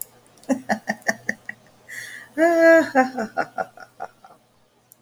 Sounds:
Laughter